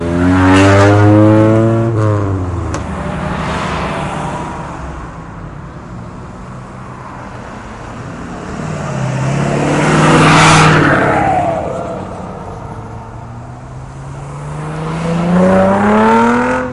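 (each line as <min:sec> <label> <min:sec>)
0:00.0 A vehicle speeds by with a sharp whooshing sound that quickly fades away. 0:03.4
0:03.0 Several cars drive past. 0:09.3
0:08.3 A fast car drives past, making a sharp whooshing sound that fades quickly. 0:12.4
0:12.3 A car accelerates, producing a quickly increasing rumble sound in the distance. 0:16.7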